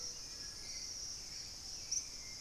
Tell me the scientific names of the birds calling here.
Turdus hauxwelli